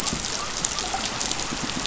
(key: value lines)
label: biophony
recorder: SoundTrap 500